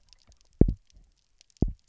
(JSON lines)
{"label": "biophony, double pulse", "recorder": "SoundTrap 300"}